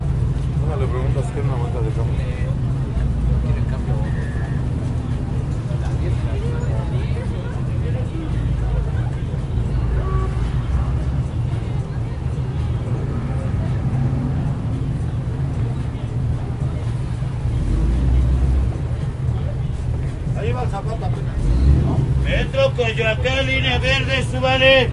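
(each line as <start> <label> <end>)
0.0 People are talking in the background. 17.6
17.7 An engine is muffled in the background. 18.9
20.3 A man is speaking loudly. 24.9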